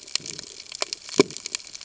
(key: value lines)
label: ambient
recorder: HydroMoth